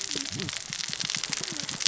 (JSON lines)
{"label": "biophony, cascading saw", "recorder": "SoundTrap 600 or HydroMoth"}